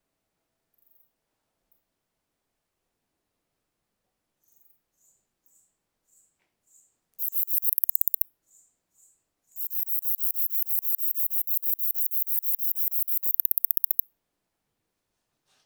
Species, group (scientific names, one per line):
Platycleis affinis
Orthoptera